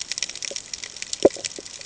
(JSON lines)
{"label": "ambient", "recorder": "HydroMoth"}